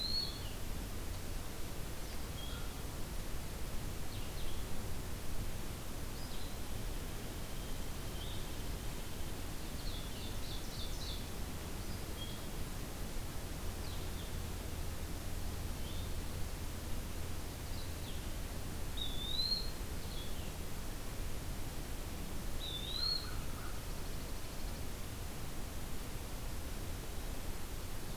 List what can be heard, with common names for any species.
Blue-headed Vireo, Ovenbird, Eastern Wood-Pewee, American Crow, Dark-eyed Junco